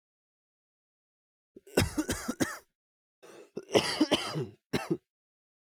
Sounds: Cough